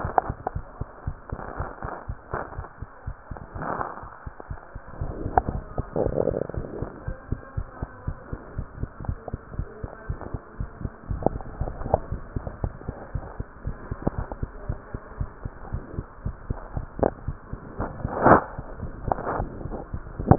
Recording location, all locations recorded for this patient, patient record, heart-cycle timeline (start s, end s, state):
mitral valve (MV)
aortic valve (AV)+pulmonary valve (PV)+tricuspid valve (TV)+mitral valve (MV)
#Age: Child
#Sex: Male
#Height: 102.0 cm
#Weight: 18.4 kg
#Pregnancy status: False
#Murmur: Absent
#Murmur locations: nan
#Most audible location: nan
#Systolic murmur timing: nan
#Systolic murmur shape: nan
#Systolic murmur grading: nan
#Systolic murmur pitch: nan
#Systolic murmur quality: nan
#Diastolic murmur timing: nan
#Diastolic murmur shape: nan
#Diastolic murmur grading: nan
#Diastolic murmur pitch: nan
#Diastolic murmur quality: nan
#Outcome: Normal
#Campaign: 2015 screening campaign
0.00	6.90	unannotated
6.90	7.06	diastole
7.06	7.16	S1
7.16	7.28	systole
7.28	7.42	S2
7.42	7.56	diastole
7.56	7.68	S1
7.68	7.80	systole
7.80	7.90	S2
7.90	8.06	diastole
8.06	8.16	S1
8.16	8.30	systole
8.30	8.40	S2
8.40	8.56	diastole
8.56	8.68	S1
8.68	8.78	systole
8.78	8.90	S2
8.90	9.06	diastole
9.06	9.20	S1
9.20	9.32	systole
9.32	9.40	S2
9.40	9.54	diastole
9.54	9.68	S1
9.68	9.82	systole
9.82	9.92	S2
9.92	10.08	diastole
10.08	10.20	S1
10.20	10.32	systole
10.32	10.42	S2
10.42	10.58	diastole
10.58	10.70	S1
10.70	10.80	systole
10.80	10.92	S2
10.92	11.08	diastole
11.08	11.24	S1
11.24	11.34	systole
11.34	11.44	S2
11.44	11.58	diastole
11.58	11.72	S1
11.72	11.82	systole
11.82	11.92	S2
11.92	12.10	diastole
12.10	12.24	S1
12.24	12.34	systole
12.34	12.44	S2
12.44	12.62	diastole
12.62	12.74	S1
12.74	12.84	systole
12.84	12.96	S2
12.96	13.12	diastole
13.12	13.24	S1
13.24	13.38	systole
13.38	13.48	S2
13.48	13.64	diastole
13.64	13.78	S1
13.78	13.90	systole
13.90	14.00	S2
14.00	14.16	diastole
14.16	14.28	S1
14.28	14.40	systole
14.40	14.54	S2
14.54	14.66	diastole
14.66	14.80	S1
14.80	14.92	systole
14.92	15.04	S2
15.04	15.18	diastole
15.18	15.30	S1
15.30	15.44	systole
15.44	15.52	S2
15.52	15.70	diastole
15.70	15.84	S1
15.84	15.94	systole
15.94	16.06	S2
16.06	16.24	diastole
16.24	16.36	S1
16.36	16.48	systole
16.48	16.62	S2
16.62	16.74	diastole
16.74	16.86	S1
16.86	20.38	unannotated